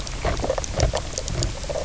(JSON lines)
{"label": "biophony, knock croak", "recorder": "SoundTrap 300"}